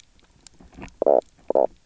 {"label": "biophony, knock croak", "recorder": "SoundTrap 300"}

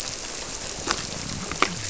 {"label": "biophony", "recorder": "SoundTrap 300"}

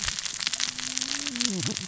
{"label": "biophony, cascading saw", "recorder": "SoundTrap 600 or HydroMoth"}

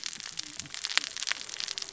{"label": "biophony, cascading saw", "recorder": "SoundTrap 600 or HydroMoth"}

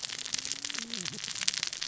{"label": "biophony, cascading saw", "recorder": "SoundTrap 600 or HydroMoth"}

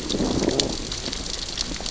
{"label": "biophony, growl", "recorder": "SoundTrap 600 or HydroMoth"}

